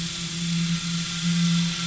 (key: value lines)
label: anthrophony, boat engine
recorder: SoundTrap 500